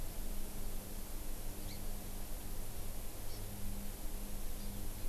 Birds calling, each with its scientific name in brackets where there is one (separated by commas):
Hawaii Amakihi (Chlorodrepanis virens)